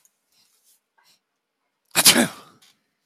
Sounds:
Sneeze